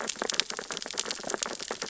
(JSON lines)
{"label": "biophony, sea urchins (Echinidae)", "recorder": "SoundTrap 600 or HydroMoth"}